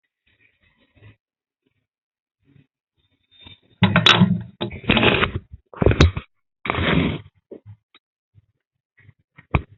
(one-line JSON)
{"expert_labels": [{"quality": "no cough present", "dyspnea": false, "wheezing": false, "stridor": false, "choking": false, "congestion": false, "nothing": false}], "age": 46, "gender": "female", "respiratory_condition": false, "fever_muscle_pain": false, "status": "symptomatic"}